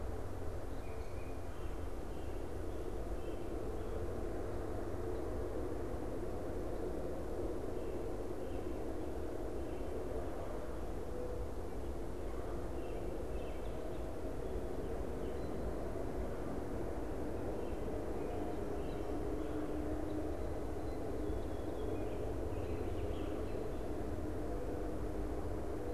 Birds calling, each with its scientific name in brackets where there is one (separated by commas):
Mourning Dove (Zenaida macroura), unidentified bird, American Robin (Turdus migratorius)